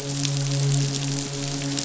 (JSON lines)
{"label": "biophony, midshipman", "recorder": "SoundTrap 500"}